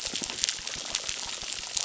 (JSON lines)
{"label": "biophony, crackle", "recorder": "SoundTrap 600"}